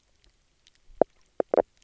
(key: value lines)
label: biophony, knock croak
recorder: SoundTrap 300